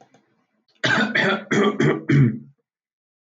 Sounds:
Throat clearing